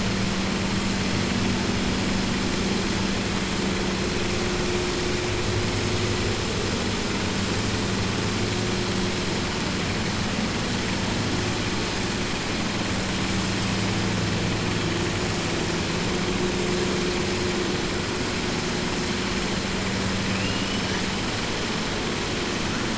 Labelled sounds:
20.3	21.0	killer whale, southern resident, 0.98 to 3.1 kHz

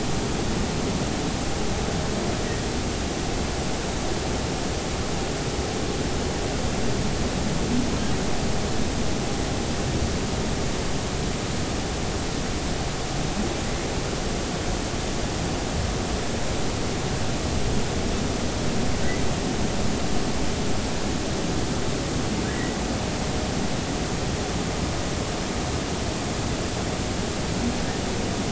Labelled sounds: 22.5	22.8	humpback whale, 1.8 to 2.0 kHz

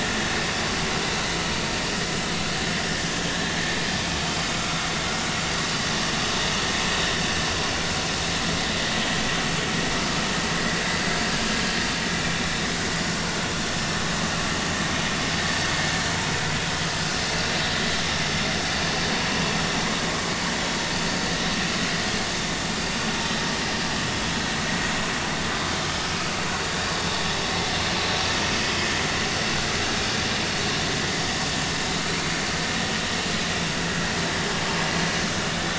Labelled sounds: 3.1	3.3	vessel noise, 3.1 to 3.3 kHz
4.6	4.9	vessel noise, 1.2 to 1.5 kHz

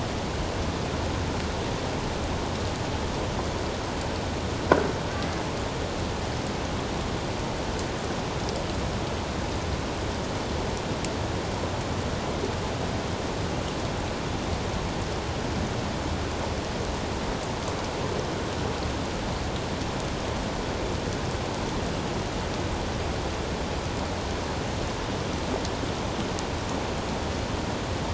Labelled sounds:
5.1	5.4	humpback whale, 1.5 to 1.8 kHz

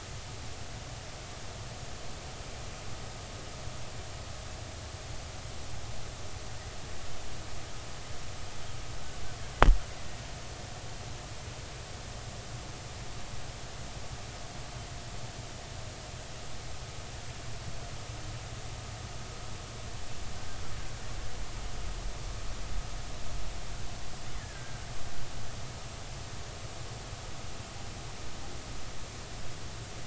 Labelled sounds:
24.4	24.7	killer whale, Bigg's (transient), 1.5 to 2.1 kHz

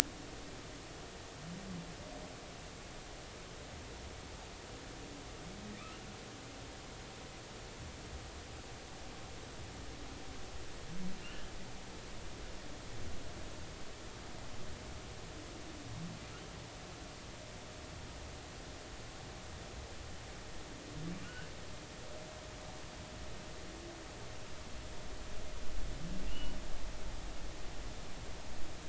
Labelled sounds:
11.2	11.5	humpback whale, 2.7 to 3.0 kHz
21.2	21.5	humpback whale, 1.4 to 3.0 kHz
26.3	26.5	humpback whale, 2.6 to 3.0 kHz

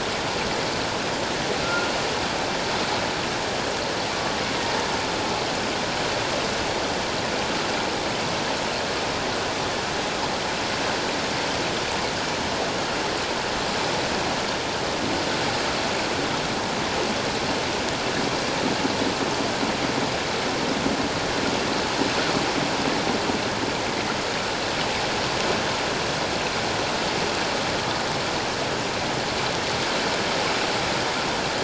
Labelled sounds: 1.6	1.9	humpback whale, 1.3 to 1.5 kHz
4.1	4.4	humpback whale, 1.1 to 1.2 kHz

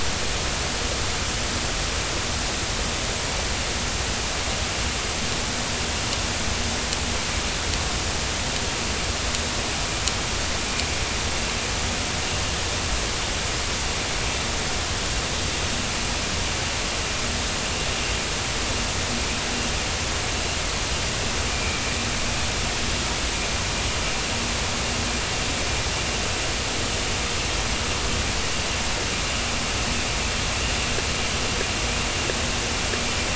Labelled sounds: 22.5	22.9	vessel noise, 2.2 to 2.5 kHz

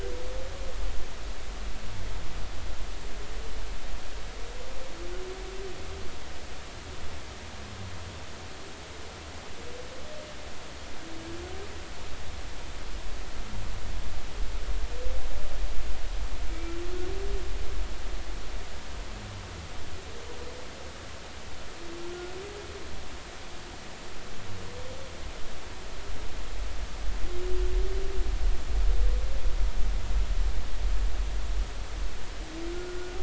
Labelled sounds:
16.5	16.7	humpback whale, 2.2 to 2.4 kHz
32.7	33.2	humpback whale, 1.3 to 1.5 kHz

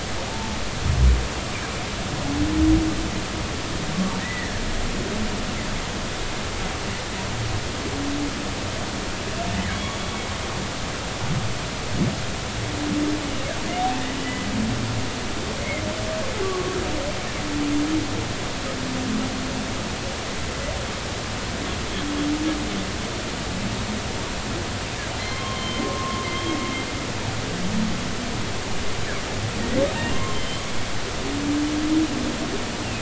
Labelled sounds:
0.3	0.6	humpback whale, 0.80 to 0.93 kHz
4.2	4.6	humpback whale, 1.6 to 2.0 kHz
14.2	14.5	humpback whale, 2.9 to 3.0 kHz
16.4	16.8	humpback whale, 1.1 to 1.2 kHz
25.2	26.3	humpback whale, 0.99 to 3.3 kHz
30.3	30.6	humpback whale, 3.0 to 3.2 kHz

